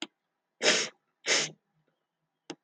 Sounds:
Sniff